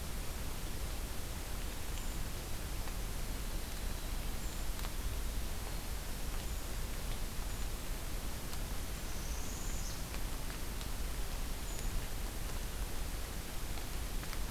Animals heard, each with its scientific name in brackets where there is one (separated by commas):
Brown Creeper (Certhia americana), Northern Parula (Setophaga americana)